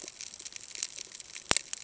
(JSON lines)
{"label": "ambient", "recorder": "HydroMoth"}